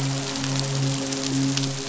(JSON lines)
{"label": "biophony, midshipman", "recorder": "SoundTrap 500"}